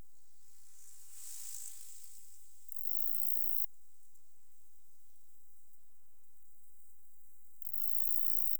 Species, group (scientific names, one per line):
Saga hellenica
Orthoptera